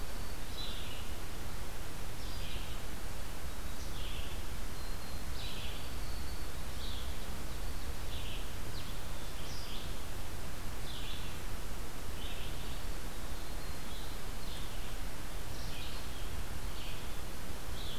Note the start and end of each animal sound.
0.0s-0.6s: Black-throated Green Warbler (Setophaga virens)
0.0s-18.0s: Red-eyed Vireo (Vireo olivaceus)
4.5s-5.4s: Black-throated Green Warbler (Setophaga virens)
12.4s-13.4s: Black-capped Chickadee (Poecile atricapillus)
13.2s-14.0s: Black-throated Green Warbler (Setophaga virens)

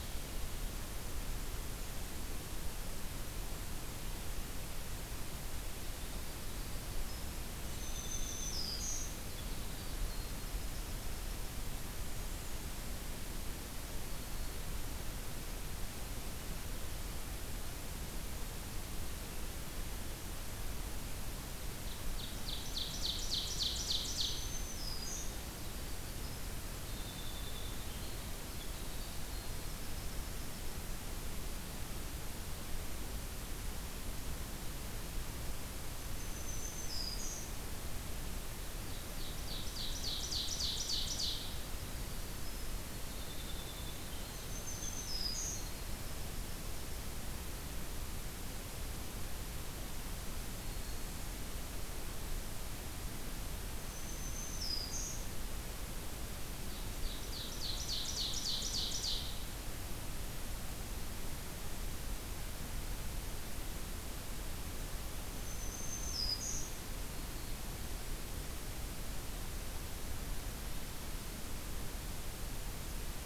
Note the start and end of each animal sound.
5.4s-11.7s: Winter Wren (Troglodytes hiemalis)
7.7s-9.1s: Black-throated Green Warbler (Setophaga virens)
11.8s-13.0s: Black-and-white Warbler (Mniotilta varia)
21.7s-24.5s: Ovenbird (Seiurus aurocapilla)
24.0s-25.3s: Black-throated Green Warbler (Setophaga virens)
25.2s-30.4s: Winter Wren (Troglodytes hiemalis)
36.0s-37.5s: Black-throated Green Warbler (Setophaga virens)
36.1s-37.5s: Black-and-white Warbler (Mniotilta varia)
38.6s-41.6s: Ovenbird (Seiurus aurocapilla)
41.5s-47.0s: Winter Wren (Troglodytes hiemalis)
44.2s-45.6s: Black-throated Green Warbler (Setophaga virens)
50.3s-51.2s: Black-throated Green Warbler (Setophaga virens)
53.8s-55.3s: Black-throated Green Warbler (Setophaga virens)
56.6s-59.3s: Ovenbird (Seiurus aurocapilla)
65.3s-66.7s: Black-throated Green Warbler (Setophaga virens)

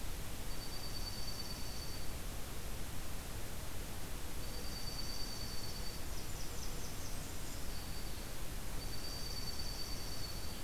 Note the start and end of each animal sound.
0.4s-2.2s: Dark-eyed Junco (Junco hyemalis)
4.3s-6.1s: Dark-eyed Junco (Junco hyemalis)
5.9s-7.7s: Blackburnian Warbler (Setophaga fusca)
7.1s-8.4s: Black-throated Green Warbler (Setophaga virens)
8.7s-10.6s: Dark-eyed Junco (Junco hyemalis)

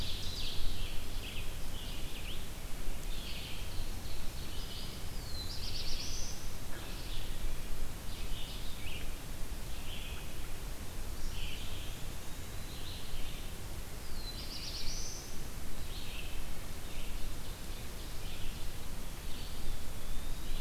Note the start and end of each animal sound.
0.0s-1.1s: Ovenbird (Seiurus aurocapilla)
0.0s-20.6s: Red-eyed Vireo (Vireo olivaceus)
3.2s-4.9s: Ovenbird (Seiurus aurocapilla)
5.0s-6.6s: Black-throated Blue Warbler (Setophaga caerulescens)
12.1s-13.1s: Eastern Wood-Pewee (Contopus virens)
13.9s-15.7s: Black-throated Blue Warbler (Setophaga caerulescens)
16.8s-19.0s: Ovenbird (Seiurus aurocapilla)
19.8s-20.6s: Eastern Wood-Pewee (Contopus virens)

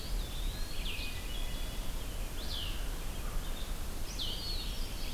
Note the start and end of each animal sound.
0.0s-0.9s: Eastern Wood-Pewee (Contopus virens)
0.0s-5.1s: Red-eyed Vireo (Vireo olivaceus)
0.7s-1.9s: Hermit Thrush (Catharus guttatus)
2.2s-2.8s: Great Crested Flycatcher (Myiarchus crinitus)
4.1s-4.6s: Eastern Wood-Pewee (Contopus virens)
4.1s-4.4s: Great Crested Flycatcher (Myiarchus crinitus)
4.3s-5.1s: Hermit Thrush (Catharus guttatus)

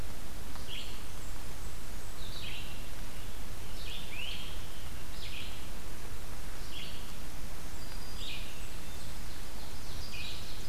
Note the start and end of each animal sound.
0.0s-10.5s: Red-eyed Vireo (Vireo olivaceus)
0.5s-2.4s: Blackburnian Warbler (Setophaga fusca)
4.0s-4.7s: Great Crested Flycatcher (Myiarchus crinitus)
7.3s-9.4s: Blackburnian Warbler (Setophaga fusca)
7.3s-8.6s: Black-throated Green Warbler (Setophaga virens)
8.3s-10.7s: Ovenbird (Seiurus aurocapilla)

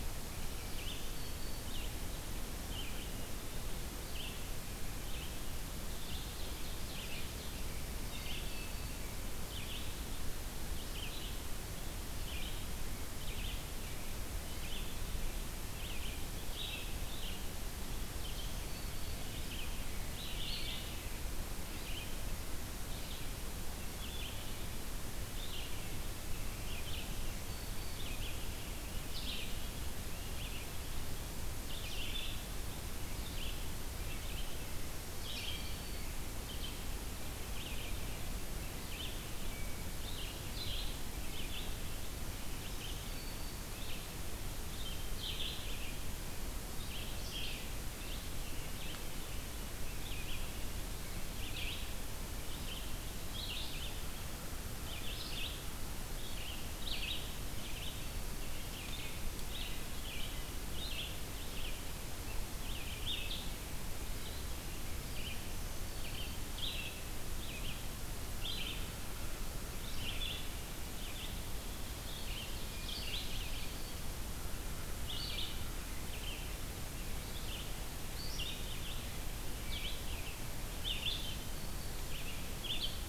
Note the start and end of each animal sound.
0.0s-1.0s: Red-eyed Vireo (Vireo olivaceus)
0.8s-1.8s: Black-throated Green Warbler (Setophaga virens)
1.4s-83.1s: Red-eyed Vireo (Vireo olivaceus)
5.9s-7.6s: Ovenbird (Seiurus aurocapilla)
7.7s-9.0s: Black-throated Green Warbler (Setophaga virens)
18.0s-19.3s: Black-throated Green Warbler (Setophaga virens)
26.9s-28.1s: Black-throated Green Warbler (Setophaga virens)
34.9s-36.3s: Black-throated Green Warbler (Setophaga virens)
39.4s-40.0s: Hermit Thrush (Catharus guttatus)
42.5s-43.7s: Black-throated Green Warbler (Setophaga virens)
65.2s-66.8s: Black-throated Green Warbler (Setophaga virens)
73.1s-74.1s: Black-throated Green Warbler (Setophaga virens)
80.9s-82.0s: Black-throated Green Warbler (Setophaga virens)

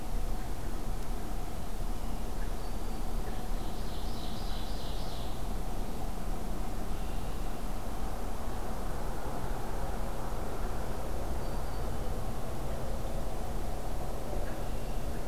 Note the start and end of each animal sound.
2.5s-3.1s: Black-throated Green Warbler (Setophaga virens)
3.6s-5.4s: Ovenbird (Seiurus aurocapilla)
6.7s-7.5s: Red-winged Blackbird (Agelaius phoeniceus)
11.3s-11.9s: Black-throated Green Warbler (Setophaga virens)
14.4s-15.0s: Red-winged Blackbird (Agelaius phoeniceus)

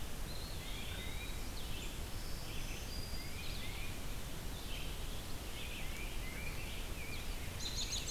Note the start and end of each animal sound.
0.0s-8.1s: Red-eyed Vireo (Vireo olivaceus)
0.2s-1.6s: Eastern Wood-Pewee (Contopus virens)
0.4s-1.2s: Tufted Titmouse (Baeolophus bicolor)
2.0s-3.6s: Black-throated Green Warbler (Setophaga virens)
3.0s-4.1s: Tufted Titmouse (Baeolophus bicolor)
5.7s-6.7s: Tufted Titmouse (Baeolophus bicolor)
7.4s-8.1s: American Robin (Turdus migratorius)

